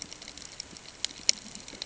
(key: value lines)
label: ambient
recorder: HydroMoth